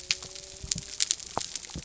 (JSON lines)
{"label": "biophony", "recorder": "SoundTrap 300"}